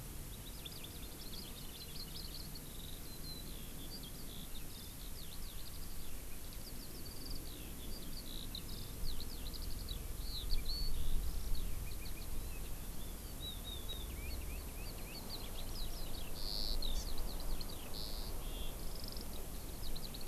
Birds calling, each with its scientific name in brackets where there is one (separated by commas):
Hawaii Amakihi (Chlorodrepanis virens), Eurasian Skylark (Alauda arvensis)